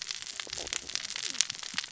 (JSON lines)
{"label": "biophony, cascading saw", "recorder": "SoundTrap 600 or HydroMoth"}